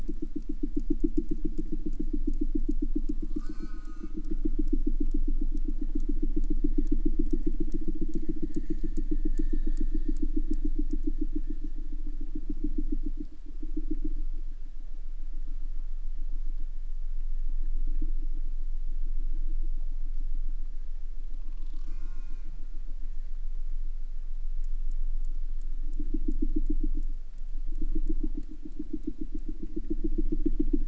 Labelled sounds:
3.3	4.7	killer whale, southern resident, J pod, call S04, 0 to 8.0 kHz
21.4	22.6	killer whale, southern resident, J pod, call S04, 0.36 to 8.0 kHz

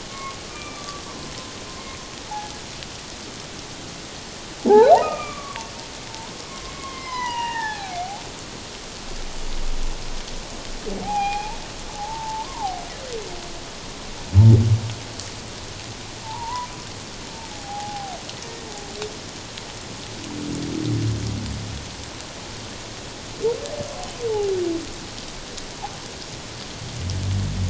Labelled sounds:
0.1	1.3	humpback whale, 0.91 to 2.4 kHz
4.6	5.6	humpback whale, 0.78 to 2.6 kHz
6.1	8.2	humpback whale, 0.78 to 6.1 kHz
11.0	11.6	humpback whale, 0.78 to 2.6 kHz
11.9	12.8	humpback whale, 0.78 to 1.1 kHz
16.2	16.7	humpback whale, 0.81 to 1.1 kHz
17.5	18.2	humpback whale, 0.78 to 0.88 kHz

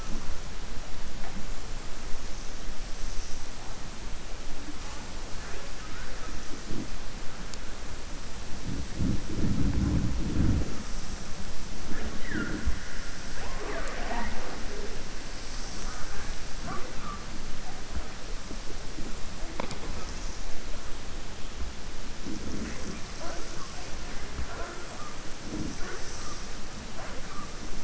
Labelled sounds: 5.8	6.3	killer whale, southern resident, 0.50 to 2.5 kHz

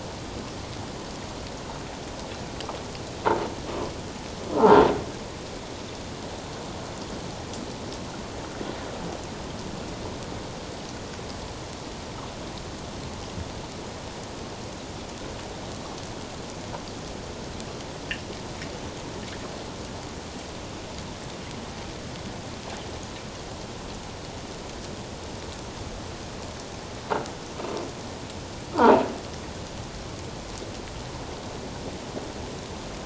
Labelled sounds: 4.5	4.8	croaking sound likely from a nearby submerged object, 0.78 to 1.1 kHz
28.7	29.0	croaking sound likely from a nearby submerged object, 0.78 to 1.1 kHz

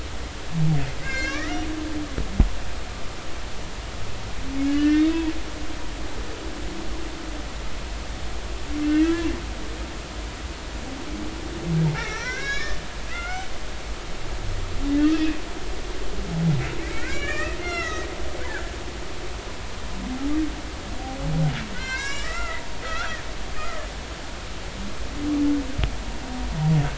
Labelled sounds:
1.0	1.6	humpback whale, 1.1 to 7.1 kHz
4.7	5.1	humpback whale, 1.4 to 3.1 kHz
8.8	9.3	humpback whale, 1.5 to 2.0 kHz
11.9	13.5	humpback whale, 1.1 to 5.8 kHz
15.1	15.4	humpback whale, 2.4 to 2.7 kHz
16.8	18.1	humpback whale, 1.1 to 5.7 kHz
18.4	18.7	humpback whale, 1.4 to 1.8 kHz
21.7	23.2	humpback whale, 0.93 to 7.5 kHz

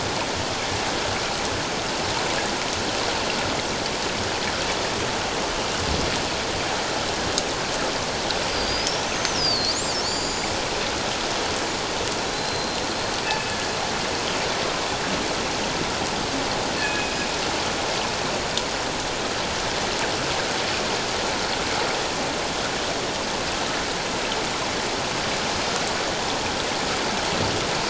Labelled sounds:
8.5	10.4	killer whale, northern resident, G clan, 4.1 to 7.3 kHz
12.3	13.6	killer whale, northern resident, G clan, 2.5 to 4.2 kHz
16.7	17.2	killer whale, northern resident, G clan, 1.6 to 2.7 kHz

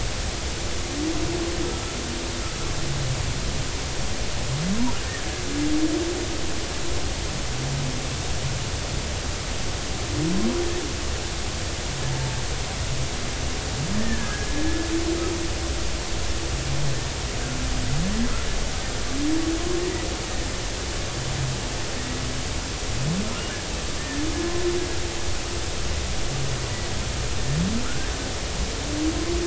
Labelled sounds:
14.0	14.5	killer whale, Bigg's (transient), 1.2 to 1.9 kHz
24.0	24.2	killer whale, Bigg's (transient), 1.7 to 1.9 kHz

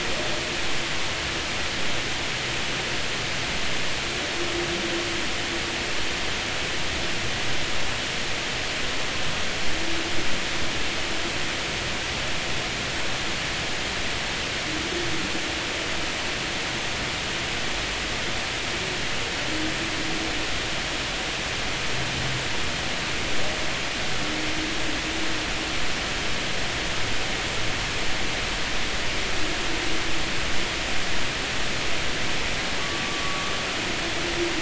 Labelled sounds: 32.8	33.5	humpback whale, 1.1 to 1.2 kHz

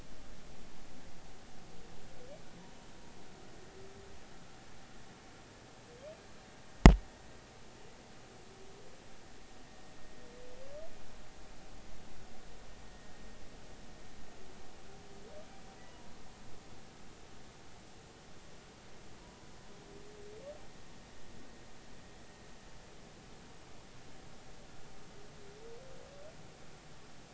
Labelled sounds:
12.9	13.1	humpback whale, 1.7 to 2.0 kHz
15.9	16.1	humpback whale, 0.90 to 1.0 kHz
19.2	19.5	humpback whale, 0.93 to 1.1 kHz

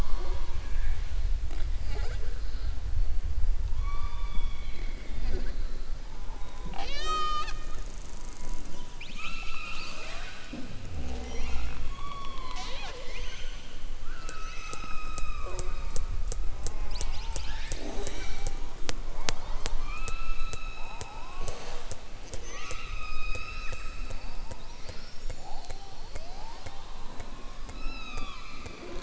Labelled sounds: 6.2	7.7	killer whale, southern resident, 0.38 to 7.7 kHz

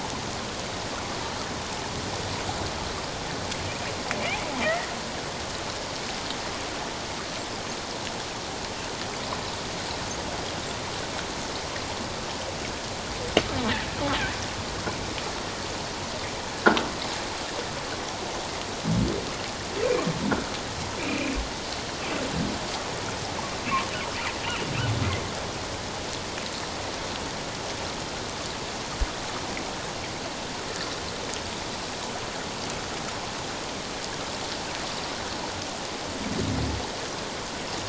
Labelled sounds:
21.0	21.3	humpback whale, 2.3 to 2.8 kHz
24.4	24.7	humpback whale, 2.6 to 3.0 kHz

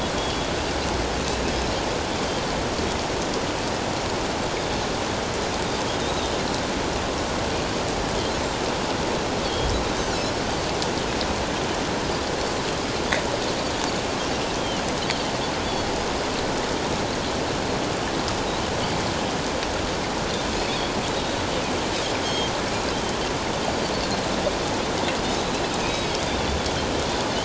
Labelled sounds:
0.2	0.5	Pacific white-sided dolphin, 3.2 to 3.4 kHz
6.0	6.3	Pacific white-sided dolphin, 3.5 to 4.0 kHz
9.4	9.7	Pacific white-sided dolphin, 3.1 to 3.4 kHz
14.6	14.8	Pacific white-sided dolphin, 2.8 to 3.4 kHz
15.6	15.9	Pacific white-sided dolphin, 3.3 to 3.5 kHz
21.2	21.4	Pacific white-sided dolphin, 3.7 to 4.0 kHz
22.2	23.2	Pacific white-sided dolphin, 3.0 to 6.5 kHz
25.8	26.1	Pacific white-sided dolphin, 3.7 to 3.9 kHz

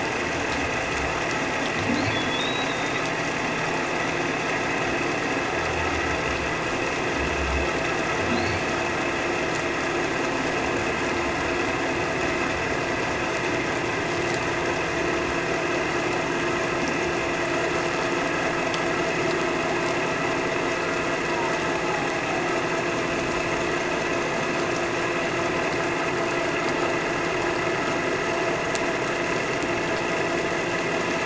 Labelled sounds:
2.1	2.9	humpback whale, 3.3 to 4.0 kHz
8.3	8.7	humpback whale, 3.8 to 4.7 kHz
21.8	22.1	humpback whale, 0.78 to 0.88 kHz

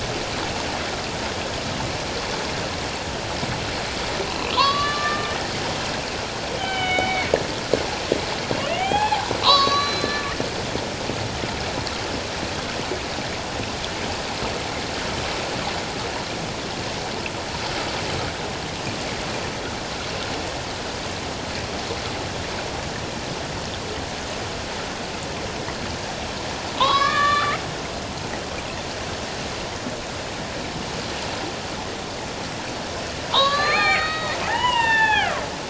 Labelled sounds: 4.3	5.3	killer whale, Bigg's (transient), 0.91 to 4.8 kHz
6.6	7.3	killer whale, Bigg's (transient), 0.78 to 3.8 kHz
8.6	10.2	killer whale, Bigg's (transient), 0.78 to 6.3 kHz
26.8	27.6	killer whale, Bigg's (transient), 0.81 to 5.4 kHz
33.3	35.4	killer whale, Bigg's (transient), 0.78 to 7.7 kHz

